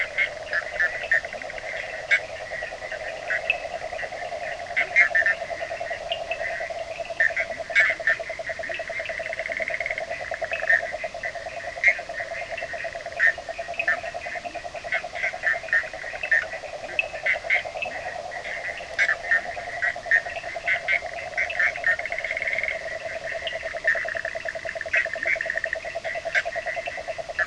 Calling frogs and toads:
Bischoff's tree frog, yellow cururu toad, Cochran's lime tree frog, Leptodactylus latrans
1:00am

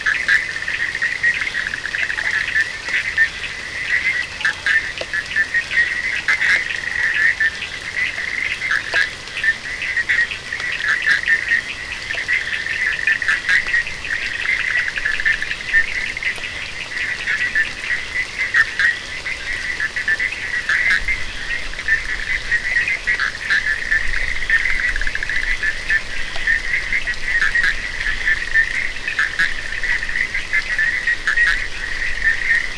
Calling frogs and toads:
Cochran's lime tree frog, Bischoff's tree frog, Scinax perereca
3:15am

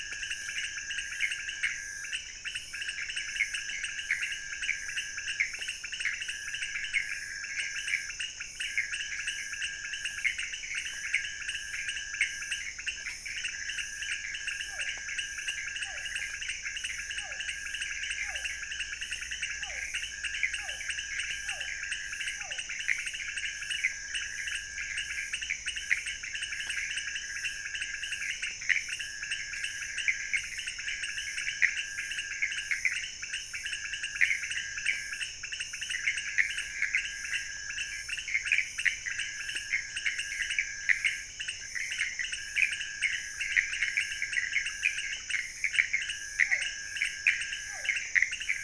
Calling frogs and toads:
pointedbelly frog, Pithecopus azureus, Physalaemus cuvieri
3:00am

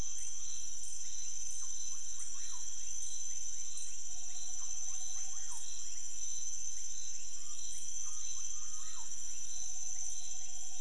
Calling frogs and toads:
rufous frog
3:00am

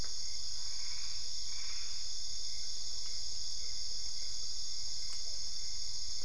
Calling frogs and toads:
Dendropsophus cruzi, Boana albopunctata, Physalaemus cuvieri
2:00am

